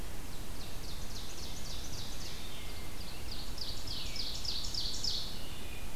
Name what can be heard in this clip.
Ovenbird, Wood Thrush